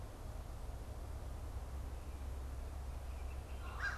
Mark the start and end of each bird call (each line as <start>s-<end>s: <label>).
2.9s-4.0s: Downy Woodpecker (Dryobates pubescens)